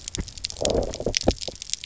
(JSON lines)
{"label": "biophony, low growl", "recorder": "SoundTrap 300"}